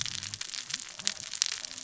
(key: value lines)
label: biophony, cascading saw
recorder: SoundTrap 600 or HydroMoth